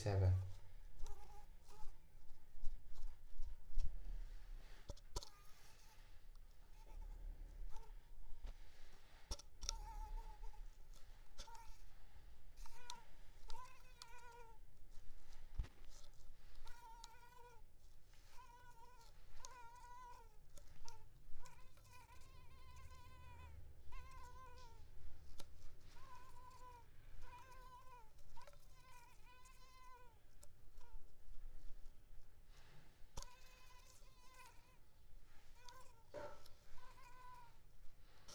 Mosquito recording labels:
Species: Mansonia uniformis; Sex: female; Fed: unfed; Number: one; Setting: cup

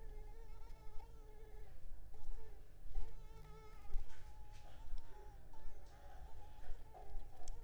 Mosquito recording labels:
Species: Culex pipiens complex; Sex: female; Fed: unfed; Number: one; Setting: cup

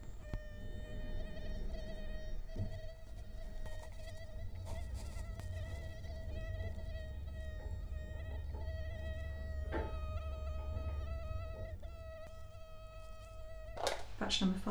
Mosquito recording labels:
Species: Culex quinquefasciatus; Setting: cup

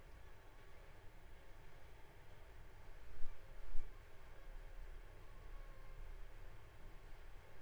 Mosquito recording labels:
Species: Culex pipiens complex; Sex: female; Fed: unfed; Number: one; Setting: cup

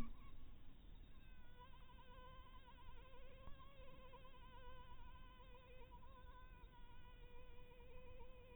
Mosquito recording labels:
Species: mosquito; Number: one; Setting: cup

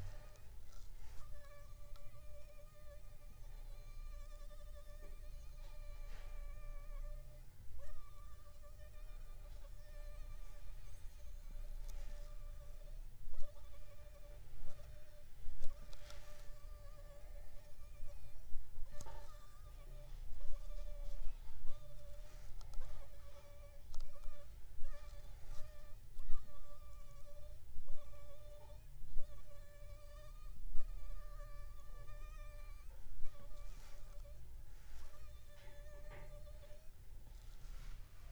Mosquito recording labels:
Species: Anopheles funestus s.s.; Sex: female; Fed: unfed; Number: one; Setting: cup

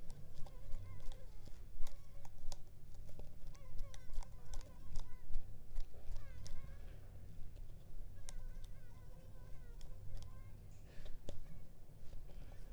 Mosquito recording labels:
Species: Culex pipiens complex; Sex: female; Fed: unfed; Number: one; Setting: cup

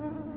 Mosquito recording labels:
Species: Culex tarsalis; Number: one; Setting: insect culture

